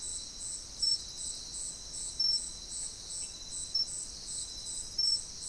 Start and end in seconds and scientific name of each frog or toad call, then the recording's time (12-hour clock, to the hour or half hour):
none
~3am